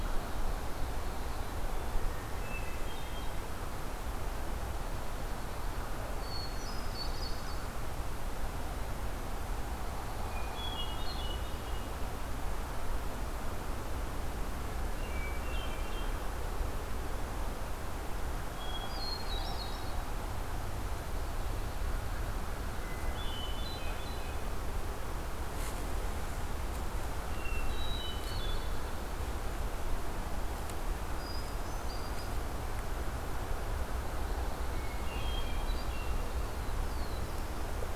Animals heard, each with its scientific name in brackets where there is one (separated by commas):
unidentified call, Black-throated Blue Warbler (Setophaga caerulescens), Hermit Thrush (Catharus guttatus)